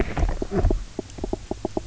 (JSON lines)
{"label": "biophony, knock", "recorder": "SoundTrap 300"}